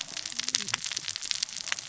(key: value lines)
label: biophony, cascading saw
recorder: SoundTrap 600 or HydroMoth